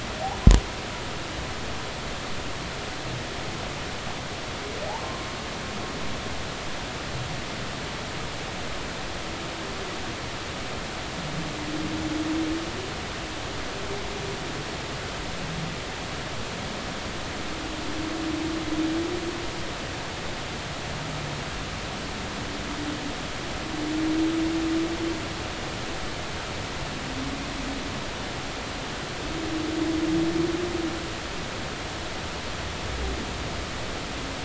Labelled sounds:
5.0	5.3	humpback whale, 1.0 to 1.2 kHz

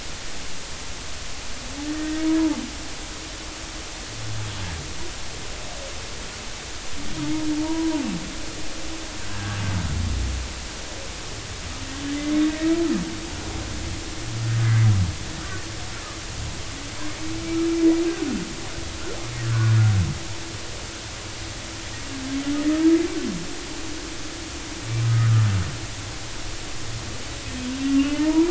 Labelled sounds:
2.0	2.3	humpback whale, 1.8 to 1.9 kHz
7.6	8.0	humpback whale, 0.83 to 1.0 kHz
9.3	9.6	humpback whale, 1.5 to 1.8 kHz
14.6	14.9	humpback whale, 1.9 to 2.1 kHz
25.0	25.3	humpback whale, 1.2 to 1.5 kHz
28.0	28.4	humpback whale, 0.86 to 3.0 kHz

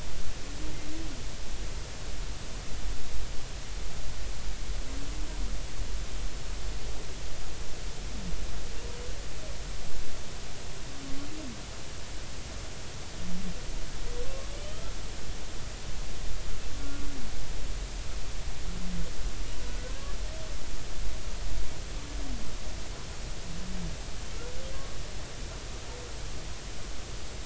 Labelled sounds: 14.2	14.8	humpback whale, 1.1 to 3.2 kHz
19.6	20.1	humpback whale, 1.4 to 1.7 kHz

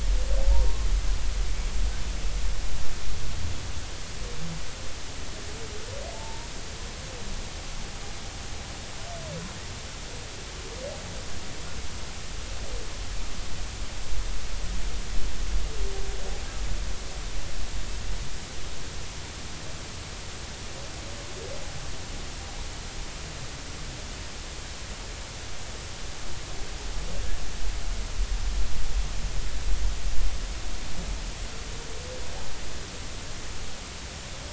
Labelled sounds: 0.5	0.8	humpback whale, 0.86 to 1.1 kHz
6.1	6.5	humpback whale, 0.83 to 0.99 kHz

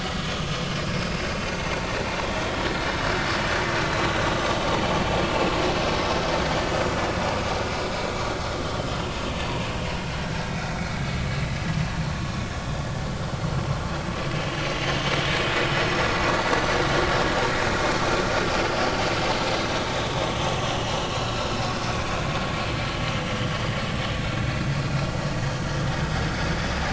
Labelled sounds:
1.0	1.3	vessel noise, 4.8 to 5.2 kHz
1.8	2.1	vessel noise, 3.8 to 4.0 kHz
3.7	4.2	vessel noise, 3.8 to 4.1 kHz
10.2	10.8	vessel noise, 1.5 to 2.0 kHz
11.7	12.0	vessel noise, 2.1 to 2.3 kHz
14.3	14.6	vessel noise, 2.8 to 2.9 kHz
15.7	16.8	vessel noise, 5.3 to 6.0 kHz
21.7	21.9	vessel noise, 2.8 to 3.0 kHz

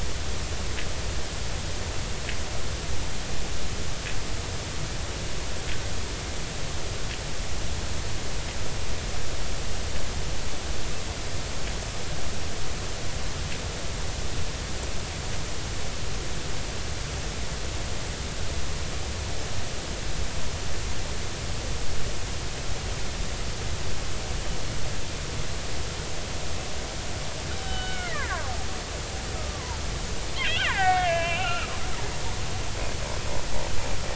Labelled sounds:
27.6	28.5	killer whale, Bigg's (transient), 0.80 to 3.9 kHz
29.3	29.8	killer whale, Bigg's (transient), 0.83 to 1.3 kHz
30.4	31.7	killer whale, Bigg's (transient), 0.80 to 3.8 kHz

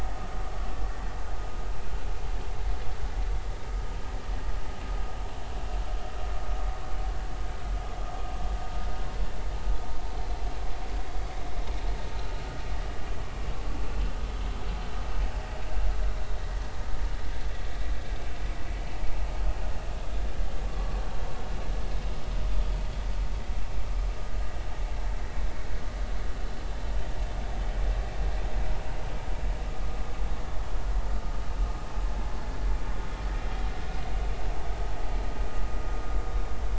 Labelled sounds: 20.6	21.0	vessel noise, 1.1 to 1.2 kHz

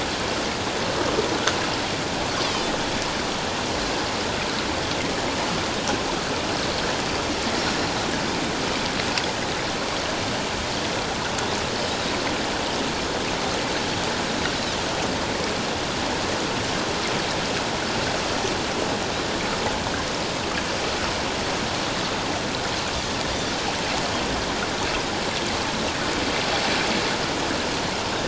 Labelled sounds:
7.6	7.9	Pacific white-sided dolphin, 5.4 to 7.0 kHz

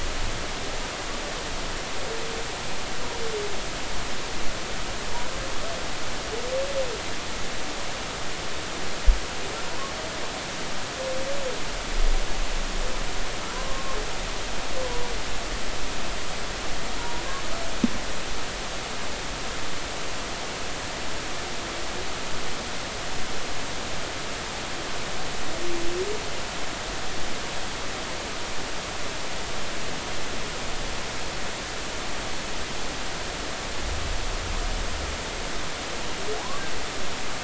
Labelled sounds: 13.5	14.0	humpback whale, 0.93 to 1.1 kHz
17.0	17.2	humpback whale, 0.90 to 1.0 kHz
36.4	36.6	humpback whale, 0.80 to 1.2 kHz

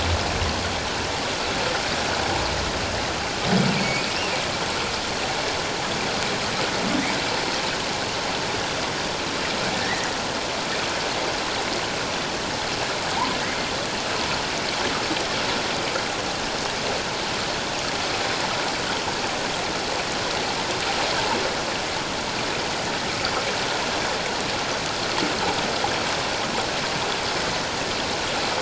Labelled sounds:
3.7	4.0	humpback whale, 2.1 to 4.6 kHz
9.7	10.1	humpback whale, 1.7 to 2.1 kHz

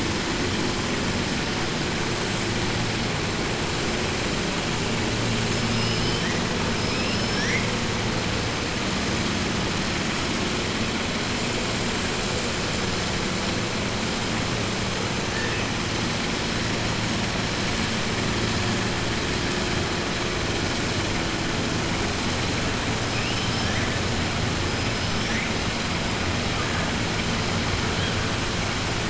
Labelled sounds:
5.7	6.4	killer whale, southern resident, 1.8 to 6.1 kHz
6.9	7.2	killer whale, southern resident, 2.4 to 3.1 kHz

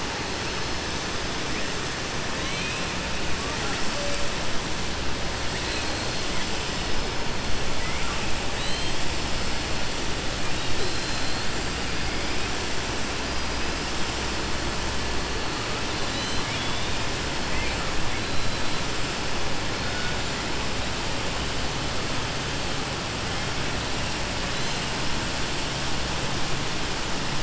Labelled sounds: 15.9	17.0	killer whale, southern resident, 1.7 to 4.6 kHz

